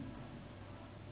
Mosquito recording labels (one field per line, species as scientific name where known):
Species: Anopheles gambiae s.s.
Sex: female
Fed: unfed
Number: one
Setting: insect culture